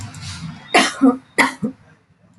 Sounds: Throat clearing